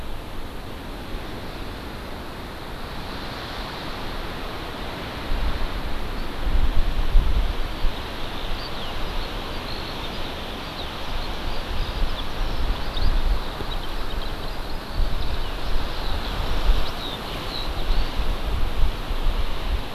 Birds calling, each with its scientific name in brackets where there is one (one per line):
Eurasian Skylark (Alauda arvensis)